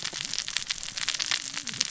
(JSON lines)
{"label": "biophony, cascading saw", "recorder": "SoundTrap 600 or HydroMoth"}